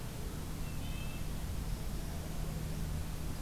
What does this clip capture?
Red-breasted Nuthatch